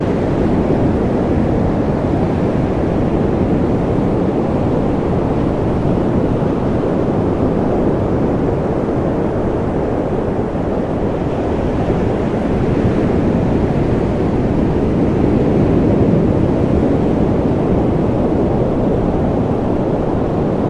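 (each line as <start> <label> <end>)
0.0 Muffled wind and waves outside. 20.7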